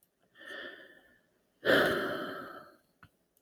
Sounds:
Sigh